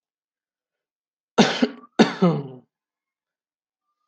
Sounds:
Cough